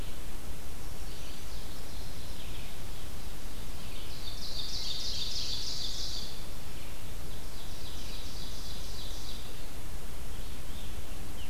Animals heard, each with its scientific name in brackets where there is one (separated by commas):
Red-eyed Vireo (Vireo olivaceus), Chestnut-sided Warbler (Setophaga pensylvanica), Ovenbird (Seiurus aurocapilla), Mourning Warbler (Geothlypis philadelphia)